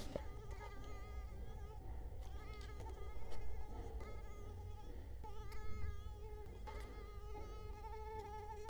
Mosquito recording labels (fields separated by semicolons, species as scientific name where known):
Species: Culex quinquefasciatus; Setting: cup